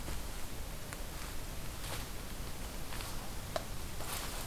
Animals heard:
forest ambience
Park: Katahdin Woods and Waters National Monument